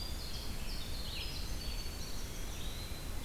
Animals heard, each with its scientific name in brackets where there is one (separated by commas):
Red-eyed Vireo (Vireo olivaceus), Winter Wren (Troglodytes hiemalis), Eastern Wood-Pewee (Contopus virens)